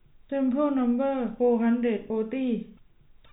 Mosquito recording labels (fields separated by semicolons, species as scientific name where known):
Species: no mosquito; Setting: cup